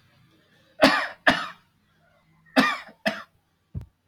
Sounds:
Cough